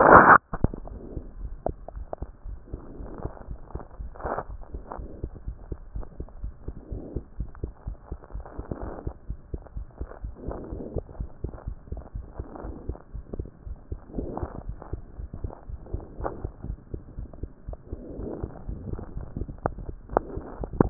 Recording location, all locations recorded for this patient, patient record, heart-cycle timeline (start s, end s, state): mitral valve (MV)
aortic valve (AV)+pulmonary valve (PV)+tricuspid valve (TV)+mitral valve (MV)
#Age: Child
#Sex: Male
#Height: nan
#Weight: nan
#Pregnancy status: False
#Murmur: Present
#Murmur locations: aortic valve (AV)+mitral valve (MV)+pulmonary valve (PV)+tricuspid valve (TV)
#Most audible location: tricuspid valve (TV)
#Systolic murmur timing: Holosystolic
#Systolic murmur shape: Plateau
#Systolic murmur grading: II/VI
#Systolic murmur pitch: Low
#Systolic murmur quality: Blowing
#Diastolic murmur timing: nan
#Diastolic murmur shape: nan
#Diastolic murmur grading: nan
#Diastolic murmur pitch: nan
#Diastolic murmur quality: nan
#Outcome: Normal
#Campaign: 2014 screening campaign
0.00	5.38	unannotated
5.38	5.46	diastole
5.46	5.56	S1
5.56	5.70	systole
5.70	5.78	S2
5.78	5.94	diastole
5.94	6.06	S1
6.06	6.18	systole
6.18	6.28	S2
6.28	6.42	diastole
6.42	6.54	S1
6.54	6.66	systole
6.66	6.74	S2
6.74	6.90	diastole
6.90	7.02	S1
7.02	7.14	systole
7.14	7.24	S2
7.24	7.38	diastole
7.38	7.50	S1
7.50	7.62	systole
7.62	7.72	S2
7.72	7.86	diastole
7.86	7.96	S1
7.96	8.10	systole
8.10	8.18	S2
8.18	8.34	diastole
8.34	8.44	S1
8.44	8.56	systole
8.56	8.64	S2
8.64	8.82	diastole
8.82	8.92	S1
8.92	9.04	systole
9.04	9.14	S2
9.14	9.28	diastole
9.28	9.38	S1
9.38	9.52	systole
9.52	9.60	S2
9.60	9.76	diastole
9.76	9.86	S1
9.86	10.00	systole
10.00	10.08	S2
10.08	10.22	diastole
10.22	10.34	S1
10.34	10.46	systole
10.46	10.56	S2
10.56	10.72	diastole
10.72	10.84	S1
10.84	10.94	systole
10.94	11.04	S2
11.04	11.18	diastole
11.18	11.28	S1
11.28	11.42	systole
11.42	11.52	S2
11.52	11.66	diastole
11.66	11.76	S1
11.76	11.90	systole
11.90	12.02	S2
12.02	12.16	diastole
12.16	12.26	S1
12.26	12.38	systole
12.38	12.46	S2
12.46	12.64	diastole
12.64	12.76	S1
12.76	12.88	systole
12.88	12.96	S2
12.96	13.14	diastole
13.14	13.24	S1
13.24	13.38	systole
13.38	13.48	S2
13.48	13.66	diastole
13.66	13.78	S1
13.78	13.90	systole
13.90	14.00	S2
14.00	14.16	diastole
14.16	20.90	unannotated